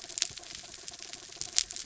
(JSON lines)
{"label": "anthrophony, mechanical", "recorder": "SoundTrap 300"}